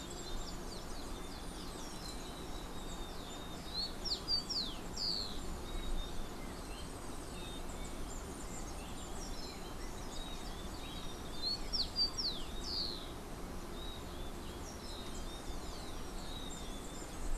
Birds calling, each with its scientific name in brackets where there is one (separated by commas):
Rufous-collared Sparrow (Zonotrichia capensis), Golden-faced Tyrannulet (Zimmerius chrysops)